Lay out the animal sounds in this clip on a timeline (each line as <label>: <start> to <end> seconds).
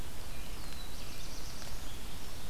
Black-throated Blue Warbler (Setophaga caerulescens): 0.1 to 2.0 seconds